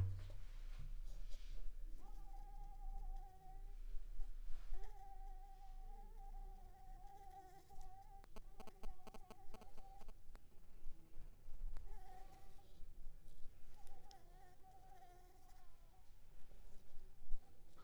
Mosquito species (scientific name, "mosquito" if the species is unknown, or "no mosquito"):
Anopheles arabiensis